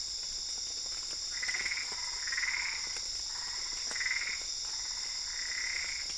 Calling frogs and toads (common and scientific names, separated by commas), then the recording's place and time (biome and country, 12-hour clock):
Boana albopunctata
Cerrado, Brazil, 3:30am